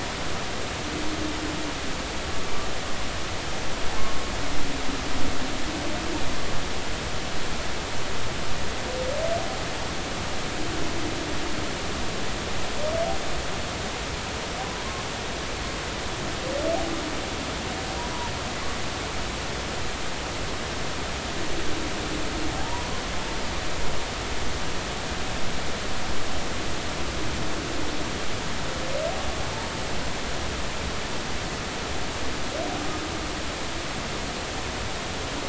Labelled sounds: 22.6	22.9	humpback whale, 0.80 to 1.1 kHz

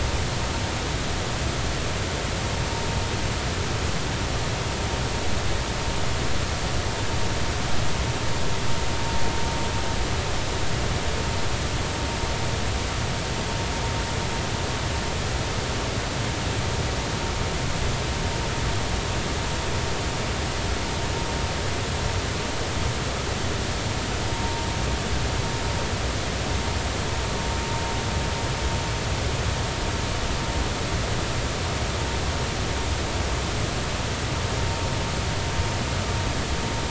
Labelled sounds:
24.3	24.7	vessel noise, 0.90 to 0.96 kHz

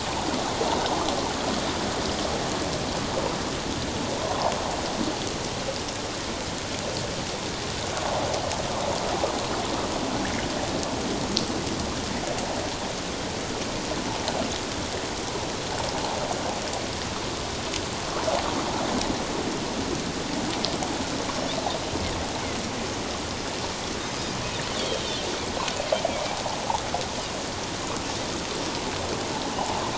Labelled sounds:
4.2	4.5	water noise, 0.78 to 1.1 kHz

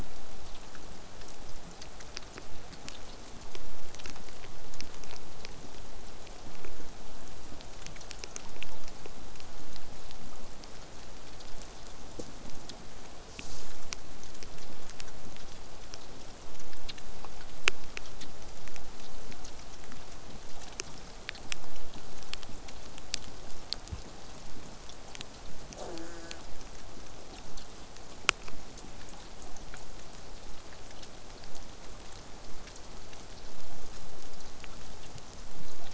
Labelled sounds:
25.8	26.4	killer whale, southern resident, J pod, call S04, 0.15 to 8.0 kHz
27.8	31.0	killer whale, southern resident, 6.1 to 8.0 kHz

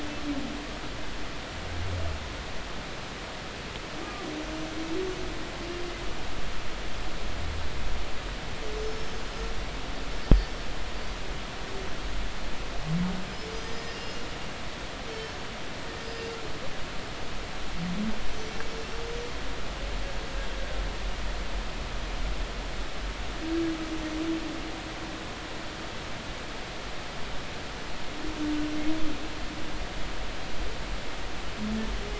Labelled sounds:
8.7	9.2	humpback whale, 5.1 to 6.3 kHz
10.2	10.5	humpback whale, 4.8 to 5.0 kHz
13.5	15.3	humpback whale, 1.8 to 6.1 kHz
16.0	16.4	humpback whale, 4.5 to 5.1 kHz
18.4	18.7	humpback whale, 5.7 to 5.9 kHz

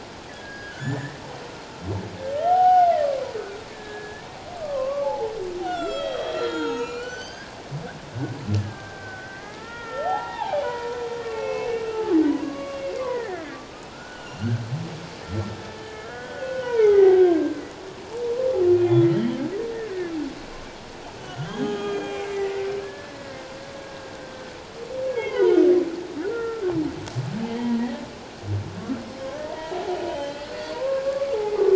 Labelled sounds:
0.3	1.2	humpback whale, 1.3 to 5.0 kHz
2.4	2.9	humpback whale, 0.78 to 3.1 kHz
3.7	4.3	humpback whale, 1.6 to 1.8 kHz
4.6	7.6	humpback whale, 0.78 to 7.7 kHz
8.6	14.5	humpback whale, 0.78 to 3.1 kHz
15.2	17.6	humpback whale, 0.78 to 2.5 kHz
18.7	19.4	humpback whale, 2.3 to 3.3 kHz
19.7	20.1	humpback whale, 1.4 to 2.0 kHz
21.2	22.4	humpback whale, 1.2 to 7.3 kHz
22.8	23.5	humpback whale, 1.6 to 2.0 kHz
24.3	26.6	humpback whale, 1.3 to 3.3 kHz
29.5	31.7	humpback whale, 0.78 to 4.5 kHz

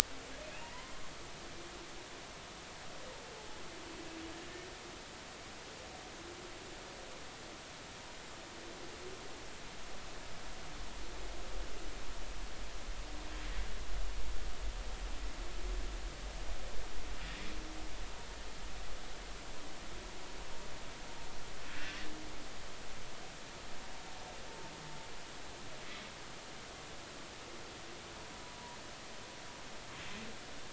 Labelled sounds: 0.5	1.0	humpback whale, 0.90 to 2.9 kHz
21.8	22.1	humpback whale, 1.4 to 2.8 kHz

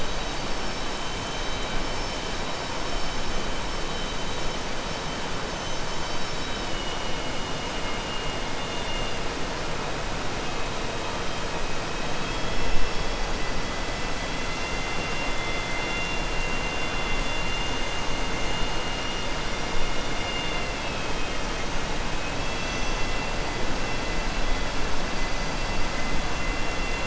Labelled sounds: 12.0	12.7	killer whale, southern resident, 2.6 to 5.3 kHz

